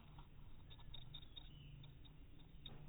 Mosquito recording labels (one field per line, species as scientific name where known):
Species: no mosquito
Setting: cup